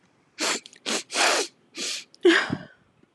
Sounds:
Sniff